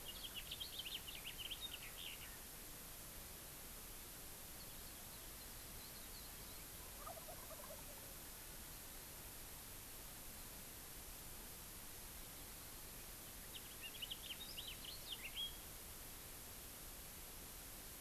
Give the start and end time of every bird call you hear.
0.0s-2.4s: House Finch (Haemorhous mexicanus)
6.7s-8.3s: Wild Turkey (Meleagris gallopavo)
13.5s-15.7s: House Finch (Haemorhous mexicanus)

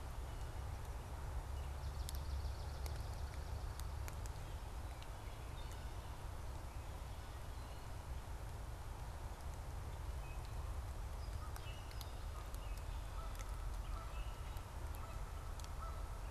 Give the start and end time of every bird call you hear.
1.7s-4.0s: Swamp Sparrow (Melospiza georgiana)
11.2s-12.8s: Gray Catbird (Dumetella carolinensis)
11.4s-16.3s: Canada Goose (Branta canadensis)

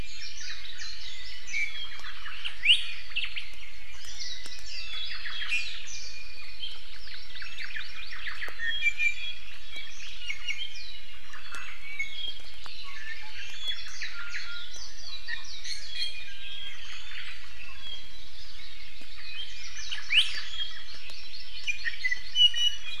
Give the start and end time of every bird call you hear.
0.0s-1.8s: Warbling White-eye (Zosterops japonicus)
1.1s-2.1s: Iiwi (Drepanis coccinea)
2.6s-2.8s: Iiwi (Drepanis coccinea)
2.7s-3.5s: Hawaii Creeper (Loxops mana)
3.1s-3.4s: Omao (Myadestes obscurus)
4.2s-5.5s: Warbling White-eye (Zosterops japonicus)
4.7s-5.5s: Omao (Myadestes obscurus)
5.5s-5.7s: Hawaii Amakihi (Chlorodrepanis virens)
5.5s-6.8s: Iiwi (Drepanis coccinea)
7.0s-8.5s: Hawaii Amakihi (Chlorodrepanis virens)
7.3s-8.5s: Omao (Myadestes obscurus)
8.5s-10.8s: Iiwi (Drepanis coccinea)
10.9s-11.7s: Omao (Myadestes obscurus)
11.5s-12.5s: Iiwi (Drepanis coccinea)
12.6s-14.7s: Warbling White-eye (Zosterops japonicus)
12.8s-13.4s: Iiwi (Drepanis coccinea)
14.1s-16.8s: Iiwi (Drepanis coccinea)
16.8s-17.4s: Omao (Myadestes obscurus)
17.3s-18.3s: Iiwi (Drepanis coccinea)
18.6s-19.5s: Hawaii Amakihi (Chlorodrepanis virens)
19.9s-20.4s: Omao (Myadestes obscurus)
20.1s-20.2s: Iiwi (Drepanis coccinea)
20.6s-22.5s: Hawaii Amakihi (Chlorodrepanis virens)
21.6s-23.0s: Iiwi (Drepanis coccinea)

